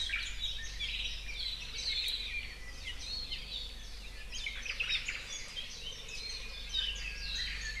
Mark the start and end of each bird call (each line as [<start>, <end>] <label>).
[0.00, 0.50] Omao (Myadestes obscurus)
[0.00, 1.30] Apapane (Himatione sanguinea)
[1.60, 2.00] Warbling White-eye (Zosterops japonicus)
[2.80, 3.50] Apapane (Himatione sanguinea)
[4.30, 4.60] Warbling White-eye (Zosterops japonicus)
[4.50, 5.30] Omao (Myadestes obscurus)
[5.30, 7.20] Warbling White-eye (Zosterops japonicus)
[6.40, 7.80] Japanese Bush Warbler (Horornis diphone)